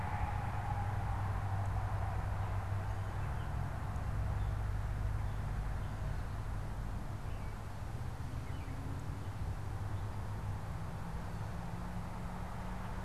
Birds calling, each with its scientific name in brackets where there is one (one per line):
American Robin (Turdus migratorius)